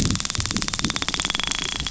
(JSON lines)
{"label": "biophony, dolphin", "recorder": "SoundTrap 500"}